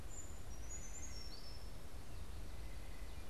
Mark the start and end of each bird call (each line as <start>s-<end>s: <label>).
0.0s-2.1s: Brown Creeper (Certhia americana)
0.0s-3.3s: White-breasted Nuthatch (Sitta carolinensis)